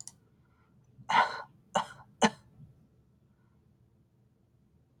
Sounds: Cough